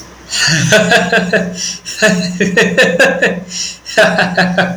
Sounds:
Laughter